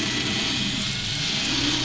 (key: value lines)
label: anthrophony, boat engine
recorder: SoundTrap 500